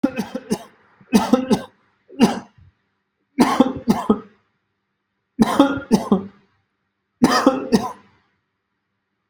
{"expert_labels": [{"quality": "good", "cough_type": "dry", "dyspnea": false, "wheezing": false, "stridor": false, "choking": false, "congestion": false, "nothing": true, "diagnosis": "COVID-19", "severity": "severe"}], "age": 41, "gender": "male", "respiratory_condition": false, "fever_muscle_pain": false, "status": "healthy"}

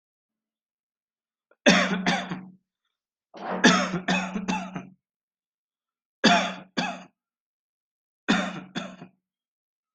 {"expert_labels": [{"quality": "good", "cough_type": "dry", "dyspnea": false, "wheezing": false, "stridor": false, "choking": false, "congestion": false, "nothing": true, "diagnosis": "upper respiratory tract infection", "severity": "mild"}], "age": 27, "gender": "male", "respiratory_condition": false, "fever_muscle_pain": false, "status": "healthy"}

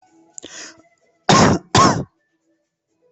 {"expert_labels": [{"quality": "ok", "cough_type": "unknown", "dyspnea": false, "wheezing": false, "stridor": false, "choking": false, "congestion": false, "nothing": true, "diagnosis": "COVID-19", "severity": "mild"}], "gender": "female", "respiratory_condition": false, "fever_muscle_pain": false, "status": "COVID-19"}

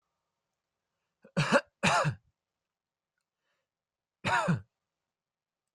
{"expert_labels": [{"quality": "good", "cough_type": "dry", "dyspnea": false, "wheezing": false, "stridor": false, "choking": false, "congestion": false, "nothing": true, "diagnosis": "upper respiratory tract infection", "severity": "mild"}], "age": 21, "gender": "male", "respiratory_condition": false, "fever_muscle_pain": false, "status": "COVID-19"}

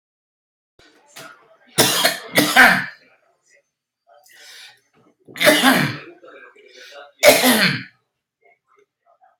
{"expert_labels": [{"quality": "good", "cough_type": "dry", "dyspnea": false, "wheezing": false, "stridor": false, "choking": false, "congestion": false, "nothing": true, "diagnosis": "upper respiratory tract infection", "severity": "mild"}], "gender": "male", "respiratory_condition": false, "fever_muscle_pain": true, "status": "COVID-19"}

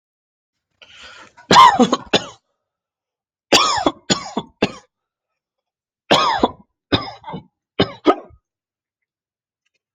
{"expert_labels": [{"quality": "good", "cough_type": "dry", "dyspnea": false, "wheezing": true, "stridor": false, "choking": true, "congestion": false, "nothing": false, "diagnosis": "COVID-19", "severity": "mild"}], "age": 30, "gender": "male", "respiratory_condition": false, "fever_muscle_pain": false, "status": "healthy"}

